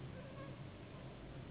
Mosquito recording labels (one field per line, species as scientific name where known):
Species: Anopheles gambiae s.s.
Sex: female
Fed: unfed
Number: one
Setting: insect culture